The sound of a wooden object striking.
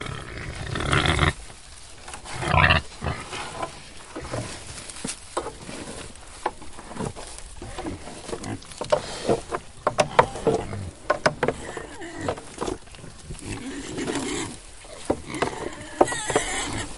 0:04.2 0:17.0

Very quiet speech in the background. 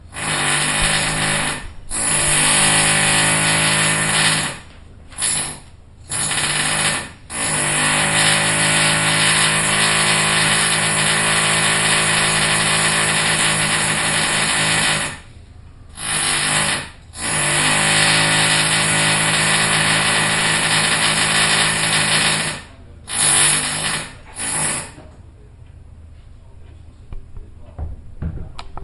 0:23.4 0:28.8

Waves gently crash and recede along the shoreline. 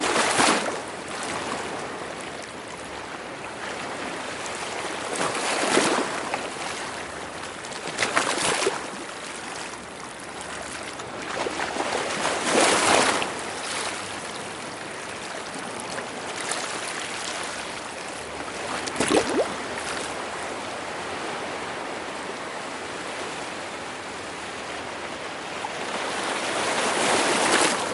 0:00.0 0:01.5, 0:04.7 0:06.7, 0:07.5 0:09.1, 0:11.3 0:13.5, 0:18.7 0:19.7, 0:26.1 0:27.9

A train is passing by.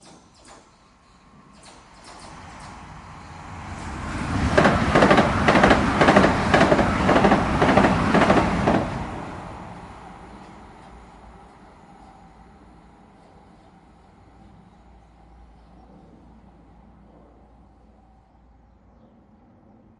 0:02.2 0:10.9

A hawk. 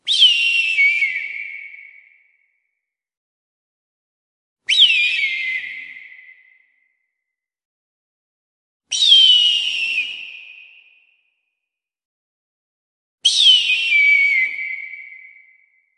0:00.1 0:02.0

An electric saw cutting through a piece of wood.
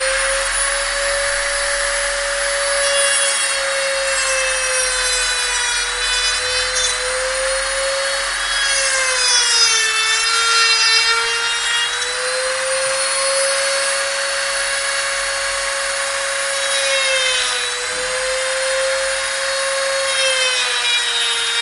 0:08.0 0:12.7

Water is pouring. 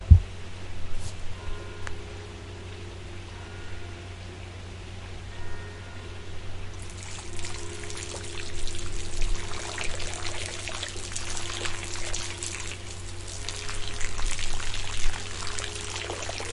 0:07.6 0:16.5

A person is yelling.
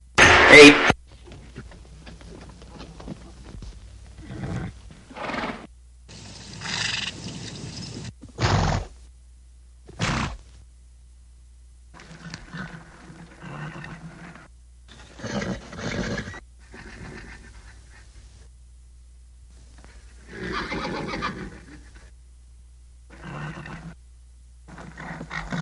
0:00.0 0:01.5

